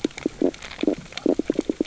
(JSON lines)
{"label": "biophony, stridulation", "recorder": "SoundTrap 600 or HydroMoth"}